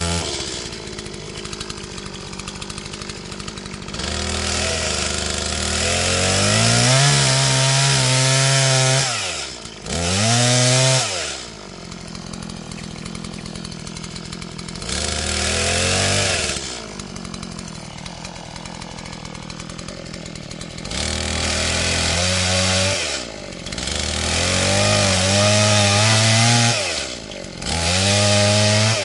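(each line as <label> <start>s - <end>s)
A small engine runs with intermittent revving, producing a rough, metallic sound. 0.0s - 29.0s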